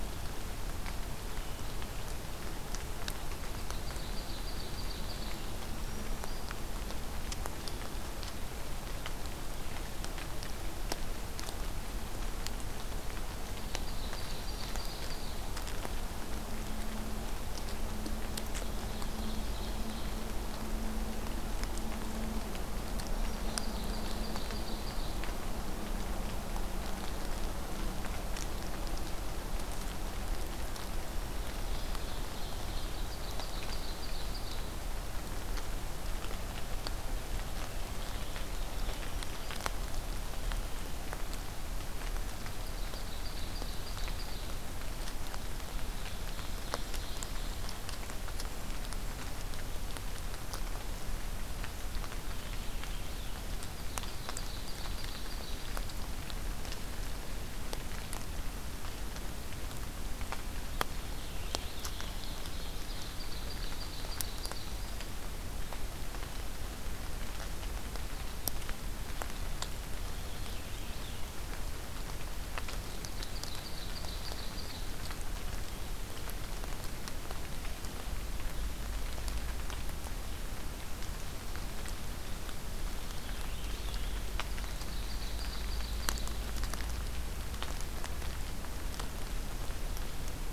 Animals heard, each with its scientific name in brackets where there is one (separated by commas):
Purple Finch (Haemorhous purpureus), Black-throated Green Warbler (Setophaga virens), Ovenbird (Seiurus aurocapilla)